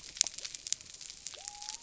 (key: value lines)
label: biophony
recorder: SoundTrap 300